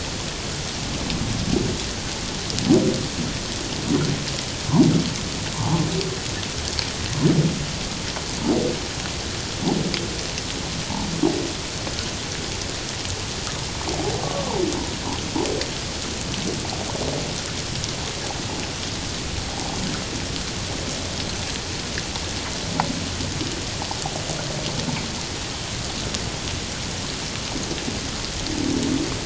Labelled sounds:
5.6	5.8	humpback whale, 0.78 to 1.2 kHz
14.2	14.6	humpback whale, 0.81 to 1.2 kHz
19.5	19.8	humpback whale, 0.78 to 1.0 kHz

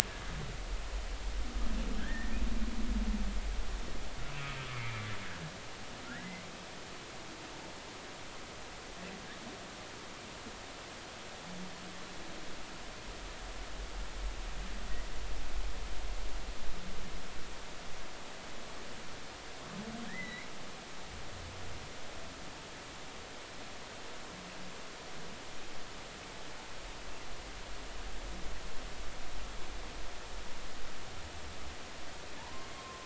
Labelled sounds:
2.0	2.4	humpback whale, 1.5 to 1.9 kHz
4.7	5.0	humpback whale, 2.0 to 2.4 kHz
6.1	6.4	humpback whale, 1.3 to 2.2 kHz
20.0	20.5	humpback whale, 1.6 to 2.3 kHz
32.4	33.0	humpback whale, 0.83 to 1.1 kHz

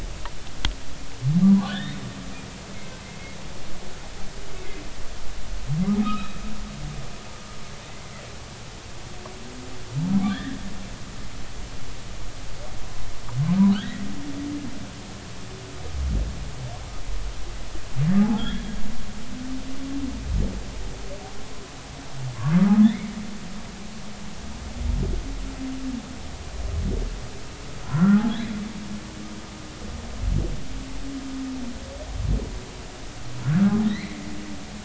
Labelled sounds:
1.6	2.0	humpback whale, 1.4 to 3.9 kHz
3.0	3.4	humpback whale, 2.0 to 2.2 kHz
6.0	6.3	humpback whale, 1.2 to 4.1 kHz
10.3	10.6	humpback whale, 1.5 to 2.0 kHz
13.7	14.1	humpback whale, 1.2 to 2.1 kHz
18.4	18.7	humpback whale, 3.2 to 3.7 kHz
22.6	23.1	humpback whale, 1.1 to 2.4 kHz
27.8	28.2	humpback whale, 0.93 to 1.5 kHz
33.8	34.2	humpback whale, 1.8 to 4.4 kHz

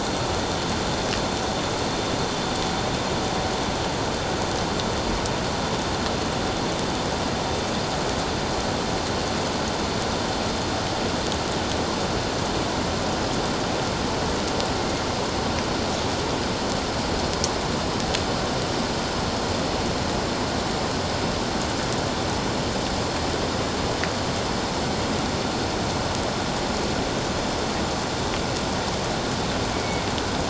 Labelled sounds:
29.7	30.0	killer whale, northern resident, A clan, 2.2 to 2.3 kHz

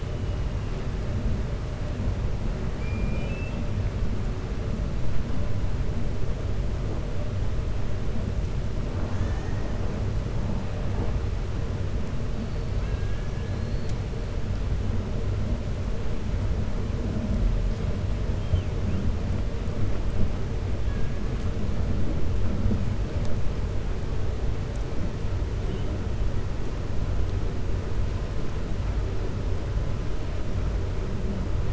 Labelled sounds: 2.7	3.6	killer whale, 1.7 to 3.7 kHz
12.7	13.5	killer whale, 1.4 to 3.3 kHz

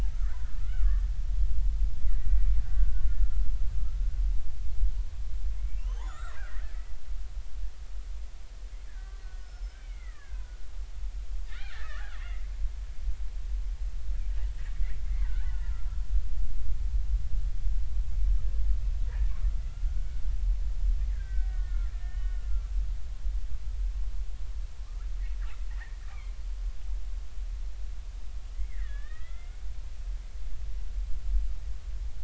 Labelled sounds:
0.2	1.0	killer whale, Bigg's (transient), 1.1 to 1.6 kHz
2.0	3.0	killer whale, Bigg's (transient), 1.4 to 2.2 kHz
5.6	6.8	killer whale, Bigg's (transient), 1.2 to 7.1 kHz
8.9	10.4	killer whale, Bigg's (transient), 1.1 to 5.4 kHz
11.5	12.4	killer whale, Bigg's (transient), 0.99 to 4.1 kHz
15.2	15.9	killer whale, Bigg's (transient), 0.83 to 2.0 kHz
19.7	22.7	killer whale, Bigg's (transient), 1.1 to 3.0 kHz
25.7	26.3	killer whale, Bigg's (transient), 1.6 to 2.5 kHz
28.5	29.6	killer whale, Bigg's (transient), 1.1 to 3.5 kHz

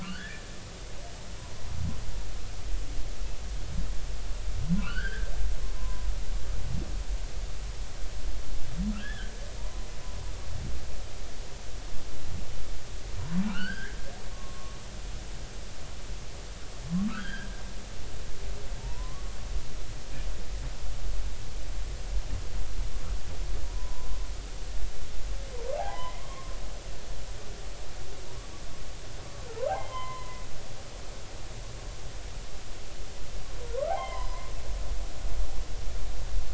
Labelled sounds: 0.0	0.4	humpback whale, 1.3 to 1.9 kHz
4.8	6.1	humpback whale, 0.96 to 4.8 kHz
8.9	9.9	humpback whale, 0.90 to 3.5 kHz
13.5	14.7	humpback whale, 1.0 to 3.1 kHz
17.1	17.5	humpback whale, 1.1 to 4.9 kHz
18.8	19.3	humpback whale, 0.86 to 1.2 kHz
23.7	24.2	humpback whale, 0.93 to 1.1 kHz
25.7	26.5	humpback whale, 0.80 to 2.2 kHz
29.7	30.4	humpback whale, 0.80 to 3.2 kHz
33.9	34.5	humpback whale, 0.80 to 3.2 kHz

